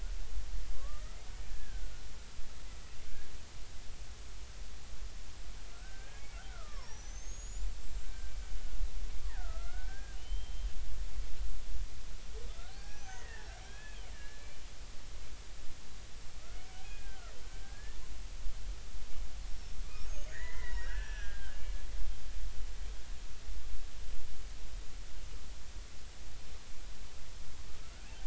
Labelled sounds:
0.7	1.9	killer whale, Bigg's (transient), 1.0 to 2.0 kHz
3.1	3.3	killer whale, Bigg's (transient), 1.5 to 1.7 kHz
5.7	8.3	killer whale, Bigg's (transient), 0.83 to 7.6 kHz
9.2	11.2	killer whale, Bigg's (transient), 0.80 to 3.2 kHz
12.5	14.6	killer whale, Bigg's (transient), 0.80 to 6.4 kHz
16.4	18.0	killer whale, Bigg's (transient), 1.2 to 2.6 kHz
19.5	19.8	killer whale, Bigg's (transient), 5.3 to 5.6 kHz
20.0	21.9	killer whale, Bigg's (transient), 0.90 to 6.5 kHz

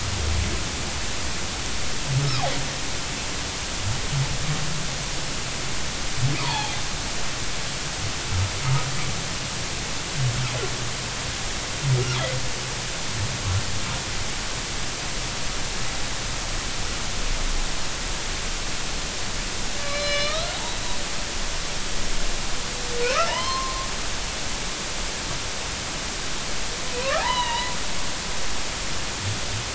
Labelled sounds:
6.4	6.8	humpback whale, 0.80 to 3.5 kHz
19.8	20.6	humpback whale, 1.1 to 5.4 kHz
23.1	23.9	humpback whale, 0.86 to 5.4 kHz
26.9	27.8	humpback whale, 0.80 to 4.1 kHz

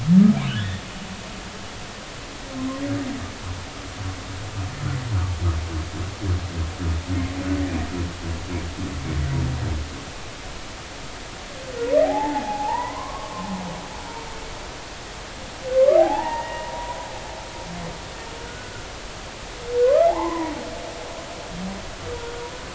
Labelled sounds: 12.0	13.5	humpback whale, 0.80 to 2.2 kHz
16.0	17.0	humpback whale, 0.80 to 2.0 kHz
18.4	18.9	humpback whale, 1.4 to 1.6 kHz
19.8	20.5	humpback whale, 0.80 to 1.4 kHz

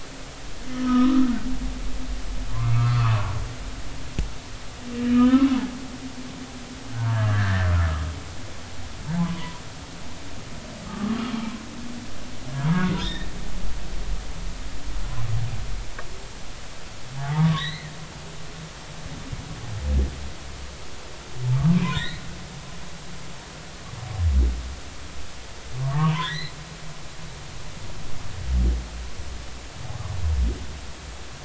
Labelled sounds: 0.7	1.3	humpback whale, 1.2 to 1.4 kHz
2.5	3.3	humpback whale, 0.96 to 2.3 kHz
5.1	6.7	humpback whale, 0.80 to 3.1 kHz
7.1	7.7	humpback whale, 1.5 to 1.9 kHz
9.2	9.6	humpback whale, 0.93 to 3.1 kHz
10.9	11.2	humpback whale, 1.1 to 1.3 kHz
12.8	13.3	humpback whale, 1.4 to 3.8 kHz
17.1	17.9	humpback whale, 0.80 to 4.3 kHz
21.7	22.2	humpback whale, 1.4 to 4.3 kHz
25.8	26.5	humpback whale, 0.80 to 4.4 kHz

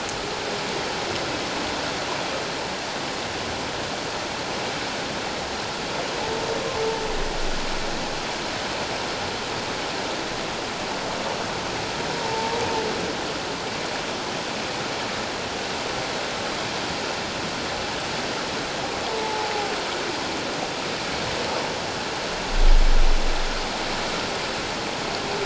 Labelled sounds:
12.2	12.6	humpback whale, 0.84 to 0.97 kHz
19.1	19.5	humpback whale, 0.78 to 1.0 kHz

